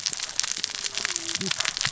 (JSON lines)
{"label": "biophony, cascading saw", "recorder": "SoundTrap 600 or HydroMoth"}